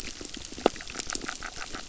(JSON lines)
{"label": "biophony", "recorder": "SoundTrap 600"}